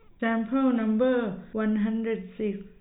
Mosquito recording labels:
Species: no mosquito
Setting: cup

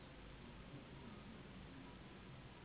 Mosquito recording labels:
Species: Anopheles gambiae s.s.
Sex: female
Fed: unfed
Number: one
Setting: insect culture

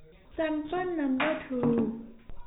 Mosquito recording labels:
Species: no mosquito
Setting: cup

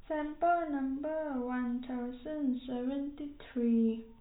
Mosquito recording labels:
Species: no mosquito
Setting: cup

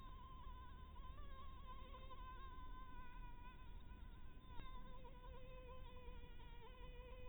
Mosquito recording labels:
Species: Anopheles maculatus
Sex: female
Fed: blood-fed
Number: one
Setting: cup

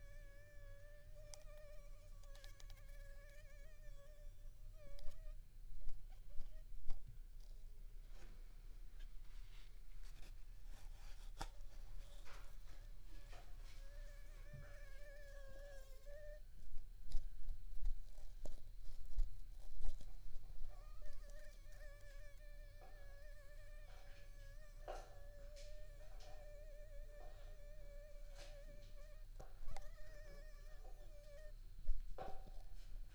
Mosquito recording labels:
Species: Anopheles arabiensis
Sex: female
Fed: unfed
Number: one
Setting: cup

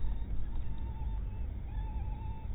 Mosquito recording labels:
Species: mosquito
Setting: cup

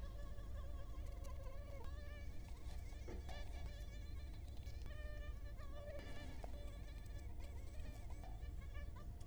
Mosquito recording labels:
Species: Culex quinquefasciatus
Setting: cup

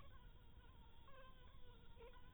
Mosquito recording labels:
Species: Anopheles harrisoni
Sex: female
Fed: blood-fed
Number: one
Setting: cup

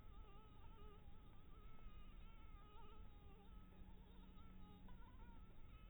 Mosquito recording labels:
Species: Anopheles dirus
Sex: female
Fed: blood-fed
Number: one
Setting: cup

